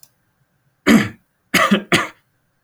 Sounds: Throat clearing